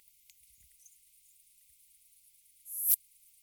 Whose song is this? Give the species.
Poecilimon affinis